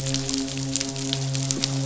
{"label": "biophony, midshipman", "recorder": "SoundTrap 500"}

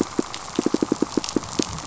{"label": "biophony, pulse", "recorder": "SoundTrap 500"}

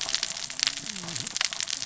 {"label": "biophony, cascading saw", "recorder": "SoundTrap 600 or HydroMoth"}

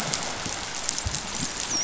{"label": "biophony, dolphin", "recorder": "SoundTrap 500"}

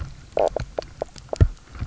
{"label": "biophony, knock croak", "recorder": "SoundTrap 300"}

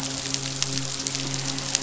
{"label": "biophony, midshipman", "recorder": "SoundTrap 500"}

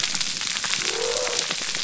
{"label": "biophony", "recorder": "SoundTrap 300"}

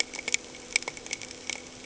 {"label": "anthrophony, boat engine", "recorder": "HydroMoth"}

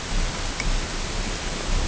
{"label": "ambient", "recorder": "HydroMoth"}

